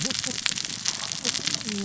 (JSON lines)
{"label": "biophony, cascading saw", "recorder": "SoundTrap 600 or HydroMoth"}